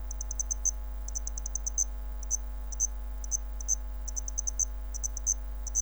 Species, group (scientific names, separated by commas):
Zvenella geniculata, Orthoptera